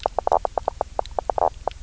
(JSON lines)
{"label": "biophony, knock croak", "recorder": "SoundTrap 300"}